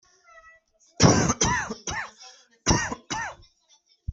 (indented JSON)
{
  "expert_labels": [
    {
      "quality": "good",
      "cough_type": "dry",
      "dyspnea": false,
      "wheezing": false,
      "stridor": false,
      "choking": false,
      "congestion": false,
      "nothing": true,
      "diagnosis": "upper respiratory tract infection",
      "severity": "mild"
    }
  ],
  "age": 46,
  "gender": "male",
  "respiratory_condition": true,
  "fever_muscle_pain": false,
  "status": "symptomatic"
}